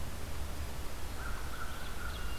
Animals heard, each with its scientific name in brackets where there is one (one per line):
American Crow (Corvus brachyrhynchos)
Ovenbird (Seiurus aurocapilla)